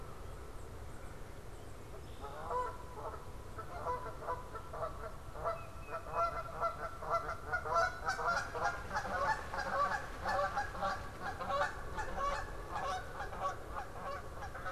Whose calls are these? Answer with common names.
Canada Goose, Red-winged Blackbird, Tufted Titmouse